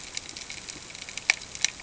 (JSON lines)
{"label": "ambient", "recorder": "HydroMoth"}